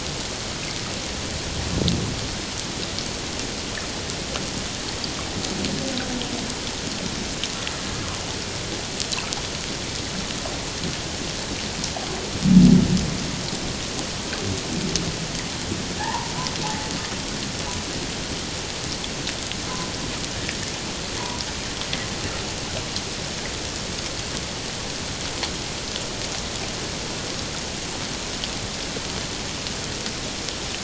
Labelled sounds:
16.0	16.3	humpback whale, 0.78 to 1.1 kHz

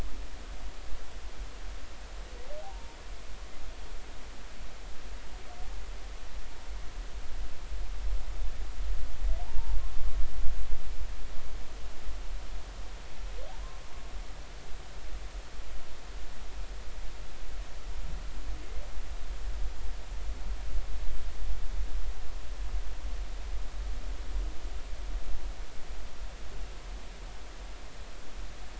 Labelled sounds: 2.6	3.0	humpback whale, 0.80 to 1.1 kHz
13.5	13.8	humpback whale, 0.80 to 1.1 kHz

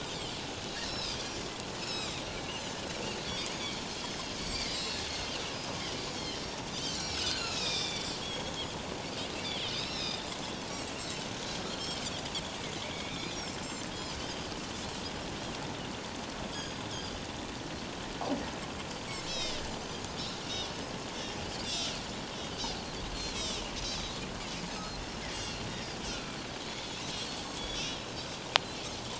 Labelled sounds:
0.8	1.5	Pacific white-sided dolphin, 3.5 to 6.6 kHz
1.8	2.2	Pacific white-sided dolphin, 2.3 to 5.5 kHz
3.5	5.0	Pacific white-sided dolphin, 3.1 to 5.0 kHz
5.5	6.6	Pacific white-sided dolphin, 2.9 to 5.6 kHz
6.9	8.5	Pacific white-sided dolphin, 1.2 to 7.0 kHz
9.7	10.3	Pacific white-sided dolphin, 3.5 to 5.6 kHz
11.7	12.0	Pacific white-sided dolphin, 4.1 to 4.4 kHz
12.9	13.6	Pacific white-sided dolphin, 2.1 to 6.1 kHz
13.9	14.4	Pacific white-sided dolphin, 2.9 to 5.2 kHz
16.5	16.8	Pacific white-sided dolphin, 3.1 to 5.1 kHz
19.3	19.6	Pacific white-sided dolphin, 2.7 to 6.0 kHz
20.5	21.9	Pacific white-sided dolphin, 2.9 to 6.1 kHz
22.5	24.1	Pacific white-sided dolphin, 4.5 to 6.6 kHz
24.7	25.0	Pacific white-sided dolphin, 5.0 to 5.4 kHz
25.3	26.4	Pacific white-sided dolphin, 1.3 to 6.5 kHz
26.7	27.0	Pacific white-sided dolphin, 3.3 to 3.5 kHz

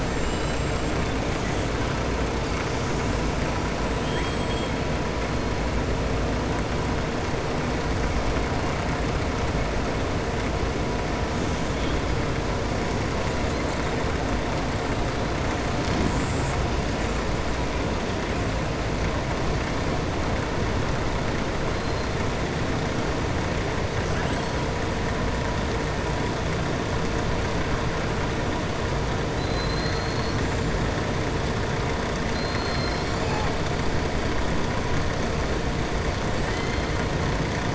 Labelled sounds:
0.2	0.6	killer whale, southern resident, 2.8 to 5.0 kHz
3.9	4.7	killer whale, southern resident, 1.7 to 3.7 kHz
24.1	24.7	killer whale, southern resident, 0.73 to 8.0 kHz
29.3	30.4	killer whale, southern resident, 3.6 to 4.6 kHz

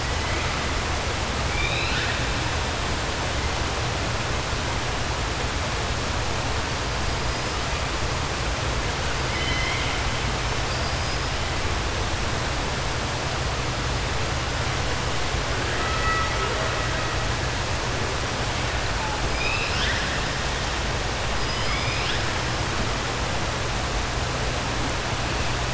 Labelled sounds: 1.4	2.2	killer whale, 1.4 to 5.0 kHz
9.2	10.0	killer whale, 2.0 to 5.2 kHz
10.6	11.2	killer whale, 4.7 to 5.3 kHz
19.3	20.2	killer whale, 1.5 to 5.7 kHz
21.3	22.2	killer whale, 1.6 to 5.4 kHz

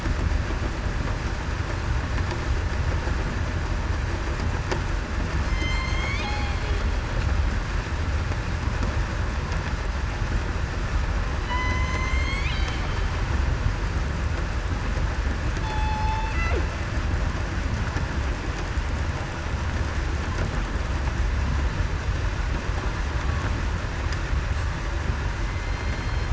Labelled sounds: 5.4	6.6	killer whale, southern resident, 0.77 to 5.3 kHz
11.4	12.5	killer whale, southern resident, 3.9 to 7.8 kHz
15.6	16.3	killer whale, southern resident, 0.82 to 3.6 kHz
25.4	26.3	killer whale, southern resident, 2.0 to 3.2 kHz

